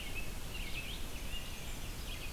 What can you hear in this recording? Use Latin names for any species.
Turdus migratorius, Vireo olivaceus